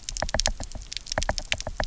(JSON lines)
{"label": "biophony, knock", "recorder": "SoundTrap 300"}